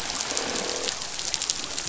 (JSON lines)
{"label": "biophony, croak", "recorder": "SoundTrap 500"}